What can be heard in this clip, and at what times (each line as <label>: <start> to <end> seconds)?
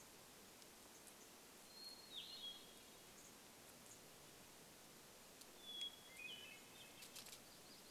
Hermit Thrush song: 0 to 8 seconds
unidentified bird chip note: 0 to 8 seconds
warbler song: 6 to 8 seconds